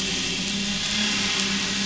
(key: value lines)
label: anthrophony, boat engine
recorder: SoundTrap 500